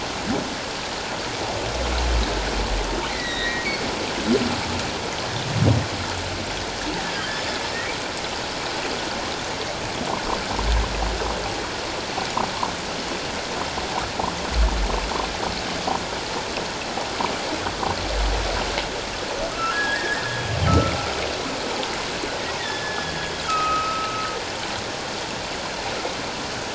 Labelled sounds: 3.1	3.7	humpback whale, 1.8 to 4.2 kHz
7.1	7.6	humpback whale, 1.5 to 3.6 kHz
19.5	20.3	humpback whale, 1.2 to 2.0 kHz
20.7	20.9	humpback whale, 1.2 to 1.4 kHz
22.6	24.3	humpback whale, 1.2 to 5.2 kHz

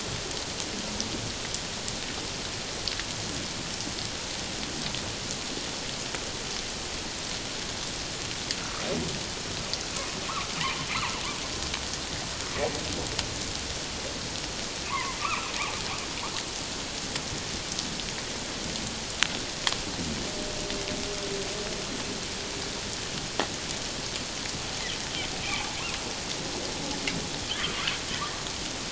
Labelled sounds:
14.9	15.5	humpback whale, 0.91 to 1.4 kHz
25.4	25.7	humpback whale, 2.2 to 2.6 kHz
27.6	27.9	humpback whale, 1.1 to 1.3 kHz

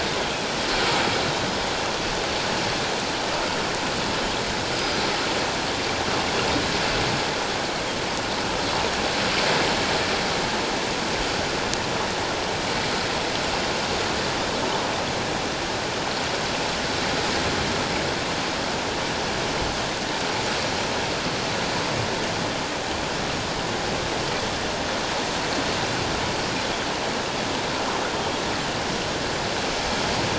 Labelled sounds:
4.7	5.0	Pacific white-sided dolphin, 4.8 to 5.1 kHz

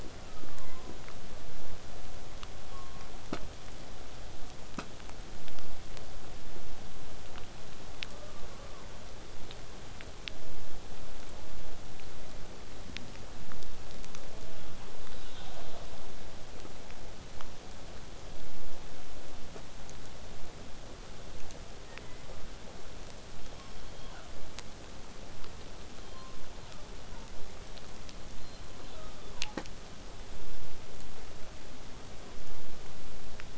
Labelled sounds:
8.1	9.0	killer whale, southern resident, 0.23 to 1.4 kHz
14.1	16.2	killer whale, southern resident, call S10, 0.15 to 4.4 kHz
16.3	21.3	vessel noise, 0 to 8.0 kHz
21.9	22.5	killer whale, southern resident, 0.88 to 2.2 kHz

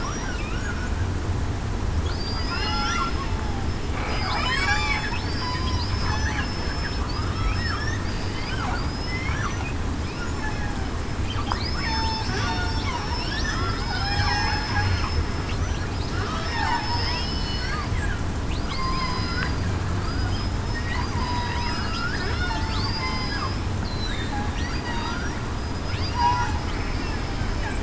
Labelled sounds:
0.0	0.8	killer whale, southern resident, 1.2 to 5.8 kHz
2.2	3.1	killer whale, southern resident, 1.3 to 4.9 kHz
4.1	6.5	killer whale, southern resident, 0.80 to 5.2 kHz
7.5	7.9	killer whale, southern resident, 5.2 to 5.6 kHz
8.7	9.3	killer whale, southern resident, 4.6 to 5.5 kHz
11.6	13.5	killer whale, southern resident, 0.80 to 5.6 kHz
13.8	14.3	killer whale, southern resident, 1.3 to 1.8 kHz
16.4	17.4	killer whale, southern resident, 1.7 to 5.1 kHz
18.7	19.2	killer whale, southern resident, 0.98 to 1.1 kHz
20.0	20.6	killer whale, southern resident, 4.8 to 5.2 kHz
21.2	23.4	killer whale, southern resident, 0.84 to 8.0 kHz
23.9	24.3	killer whale, southern resident, 3.6 to 4.1 kHz
25.6	27.2	killer whale, southern resident, 0.84 to 5.3 kHz

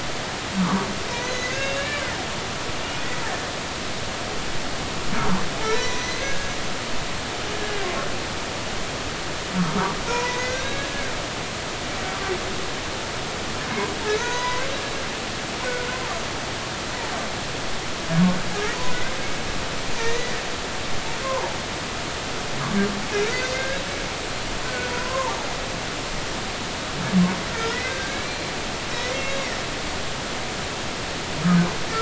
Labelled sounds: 0.6	2.0	humpback whale, 0.86 to 6.7 kHz
5.7	6.6	humpback whale, 0.90 to 7.0 kHz
10.1	10.9	humpback whale, 0.93 to 6.1 kHz
14.1	14.9	humpback whale, 0.90 to 6.4 kHz
18.9	19.2	humpback whale, 1.9 to 2.2 kHz
20.0	20.4	humpback whale, 1.8 to 2.0 kHz
21.2	21.6	humpback whale, 0.80 to 1.1 kHz
23.3	23.8	humpback whale, 1.5 to 4.7 kHz
24.6	25.4	humpback whale, 0.80 to 1.6 kHz
27.5	28.5	humpback whale, 1.3 to 4.2 kHz
29.1	29.4	humpback whale, 2.1 to 2.2 kHz

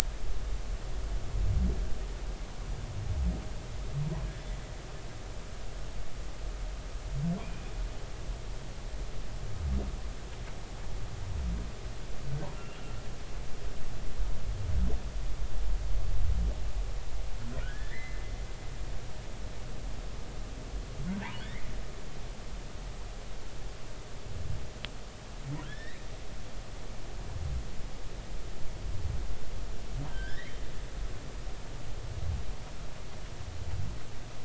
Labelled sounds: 7.4	7.6	humpback whale, 2.2 to 2.5 kHz
12.5	12.8	humpback whale, 2.7 to 2.9 kHz
17.6	18.2	humpback whale, 1.3 to 2.3 kHz
21.4	21.6	humpback whale, 1.5 to 2.3 kHz
25.6	26.0	humpback whale, 1.6 to 4.0 kHz
30.1	30.6	humpback whale, 1.5 to 3.9 kHz

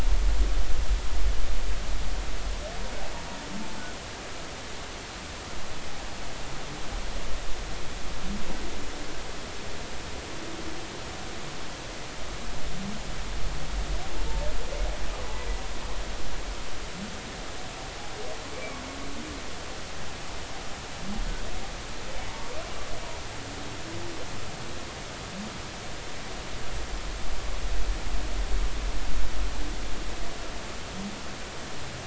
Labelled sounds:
18.5	18.8	humpback whale, 2.2 to 2.4 kHz

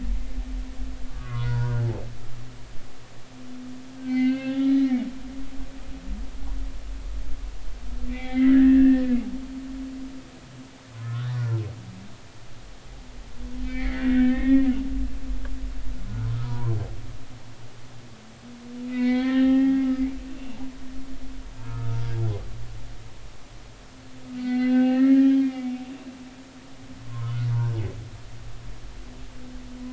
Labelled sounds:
1.1	1.9	humpback whale, 0.90 to 1.8 kHz
4.0	5.0	humpback whale, 0.80 to 4.5 kHz
8.1	9.4	humpback whale, 0.80 to 2.8 kHz
10.9	11.6	humpback whale, 0.99 to 1.8 kHz
13.6	14.7	humpback whale, 1.5 to 3.6 kHz
16.3	16.8	humpback whale, 0.80 to 1.4 kHz
18.8	19.9	humpback whale, 0.80 to 4.4 kHz
21.6	22.0	humpback whale, 1.2 to 1.5 kHz
24.4	25.8	humpback whale, 0.80 to 4.6 kHz
27.0	27.4	humpback whale, 0.93 to 1.1 kHz

